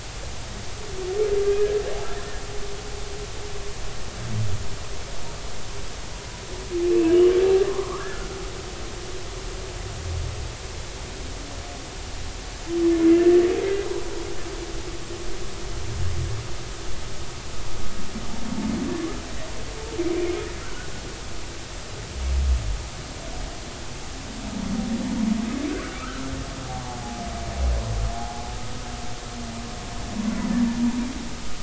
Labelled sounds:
7.7	8.3	humpback whale, 0.96 to 1.8 kHz
20.6	20.9	humpback whale, 1.4 to 1.6 kHz
25.7	26.2	humpback whale, 1.1 to 1.7 kHz
28.1	28.4	humpback whale, 0.80 to 0.90 kHz

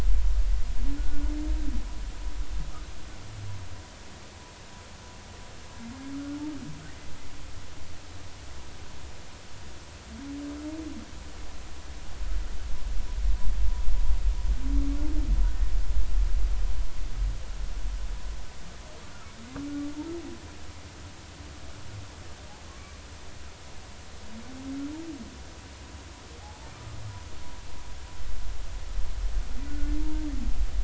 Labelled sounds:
1.0	1.2	humpback whale, 1.4 to 1.5 kHz
22.6	23.0	humpback whale, 1.0 to 1.2 kHz
26.4	26.7	humpback whale, 0.80 to 0.96 kHz
29.7	30.3	humpback whale, 0.86 to 1.5 kHz

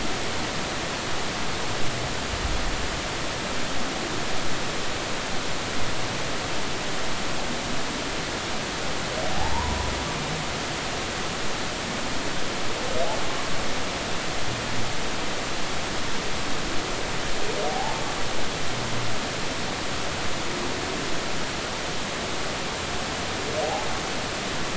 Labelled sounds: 9.3	9.9	humpback whale, 0.80 to 1.1 kHz
17.7	18.0	humpback whale, 0.80 to 0.93 kHz

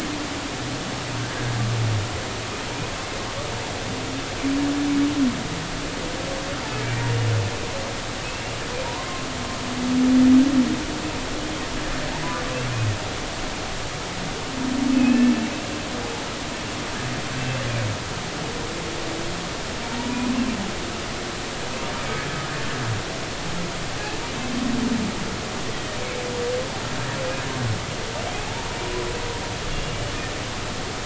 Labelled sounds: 8.2	8.5	humpback whale, 2.5 to 2.8 kHz
8.8	9.3	humpback whale, 0.90 to 1.1 kHz
14.9	15.3	humpback whale, 2.5 to 2.8 kHz
20.0	20.3	humpback whale, 0.90 to 1.0 kHz
22.0	22.2	humpback whale, 2.1 to 2.4 kHz
29.7	30.1	humpback whale, 2.7 to 3.0 kHz

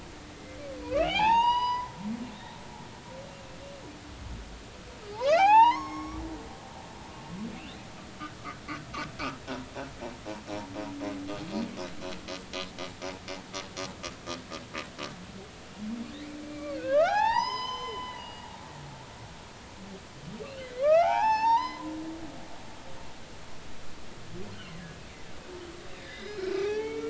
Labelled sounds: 0.8	1.9	humpback whale, 0.80 to 6.0 kHz
2.3	2.6	humpback whale, 3.4 to 3.9 kHz
5.1	6.2	humpback whale, 0.80 to 6.6 kHz
16.4	18.5	humpback whale, 0.80 to 6.2 kHz
20.4	21.9	humpback whale, 0.80 to 6.5 kHz
26.0	27.0	humpback whale, 0.80 to 6.1 kHz

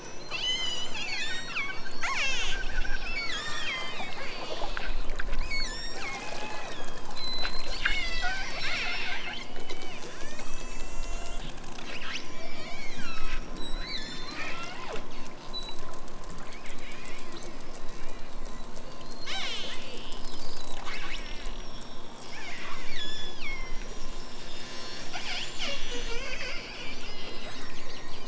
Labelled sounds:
0.3	5.1	killer whale, southern Alaska resident, 0.37 to 8.0 kHz
5.4	11.5	killer whale, southern Alaska resident, 0.51 to 8.0 kHz
12.2	14.9	killer whale, southern Alaska resident, 0.74 to 8.0 kHz
19.0	20.4	killer whale, southern Alaska resident, 0.92 to 8.0 kHz
22.9	23.8	killer whale, southern Alaska resident, 1.1 to 8.0 kHz

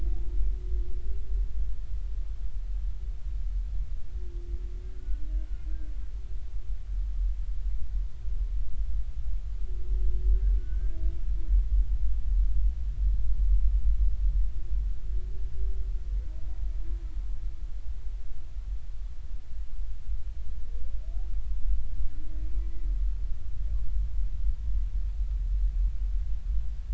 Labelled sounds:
4.9	5.2	humpback whale, 1.4 to 1.5 kHz
10.5	11.0	humpback whale, 1.4 to 1.7 kHz

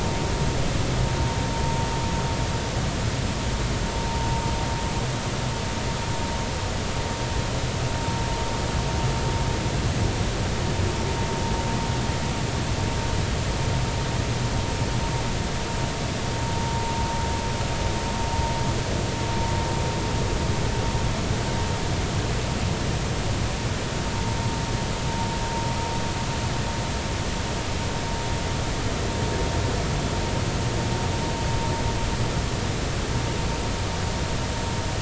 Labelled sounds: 4.0	4.3	vessel noise, 0.90 to 0.96 kHz

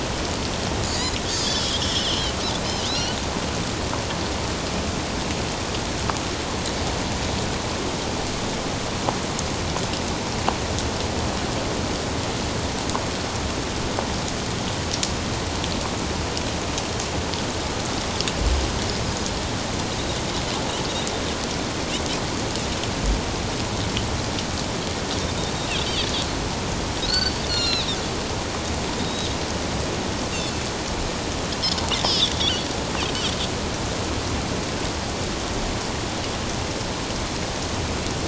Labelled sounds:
0.9	2.2	Pacific white-sided dolphin, 2.8 to 7.2 kHz
2.9	3.2	Pacific white-sided dolphin, 2.5 to 4.5 kHz
27.1	27.9	Pacific white-sided dolphin, 1.3 to 7.2 kHz
29.0	29.3	Pacific white-sided dolphin, 3.6 to 3.9 kHz
32.0	32.7	Pacific white-sided dolphin, 2.9 to 5.5 kHz

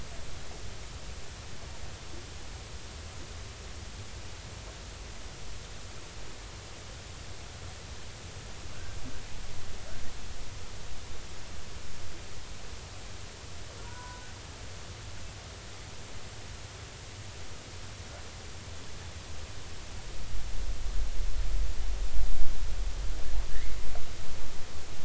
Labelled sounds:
13.8	14.2	killer whale, northern resident, G clan, 0.90 to 1.6 kHz

